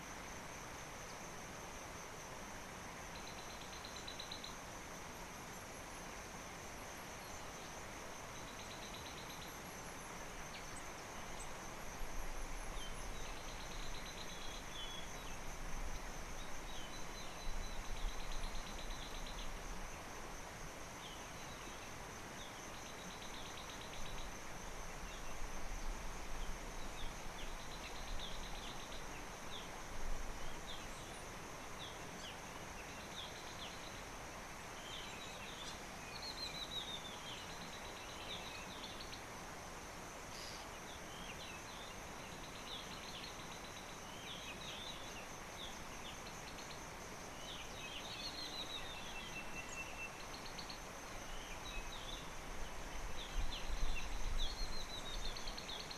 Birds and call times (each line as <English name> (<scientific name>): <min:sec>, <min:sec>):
African Bare-eyed Thrush (Turdus tephronotus): 0:03.7, 0:13.8, 0:18.5, 0:23.6, 0:27.9, 0:33.4, 0:37.8, 0:50.5, 0:53.8
Spotted Morning-Thrush (Cichladusa guttata): 0:14.8
Spectacled Weaver (Ploceus ocularis): 0:36.4, 0:48.3, 0:54.6
Sulphur-breasted Bushshrike (Telophorus sulfureopectus): 0:49.4